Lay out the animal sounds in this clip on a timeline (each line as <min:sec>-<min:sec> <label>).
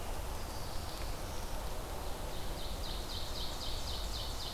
0:00.0-0:01.6 Black-throated Blue Warbler (Setophaga caerulescens)
0:01.9-0:04.5 Ovenbird (Seiurus aurocapilla)